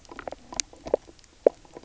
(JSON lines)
{"label": "biophony, knock croak", "recorder": "SoundTrap 300"}